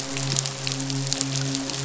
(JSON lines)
{"label": "biophony, midshipman", "recorder": "SoundTrap 500"}